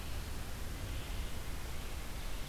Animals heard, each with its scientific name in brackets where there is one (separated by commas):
Red-eyed Vireo (Vireo olivaceus)